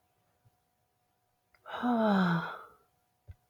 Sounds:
Sigh